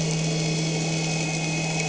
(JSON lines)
{"label": "anthrophony, boat engine", "recorder": "HydroMoth"}